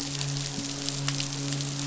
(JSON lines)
{"label": "biophony, midshipman", "recorder": "SoundTrap 500"}